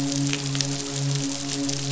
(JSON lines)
{"label": "biophony, midshipman", "recorder": "SoundTrap 500"}